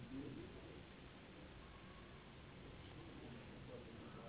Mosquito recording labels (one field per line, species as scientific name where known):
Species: Anopheles gambiae s.s.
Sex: female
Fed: unfed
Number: one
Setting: insect culture